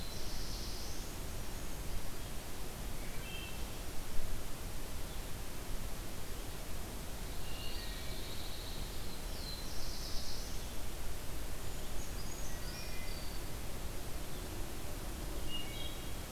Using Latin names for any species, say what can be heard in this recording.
Setophaga caerulescens, Hylocichla mustelina, Setophaga pinus, Contopus virens, Certhia americana